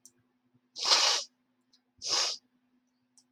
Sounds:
Sniff